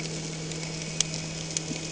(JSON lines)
{"label": "anthrophony, boat engine", "recorder": "HydroMoth"}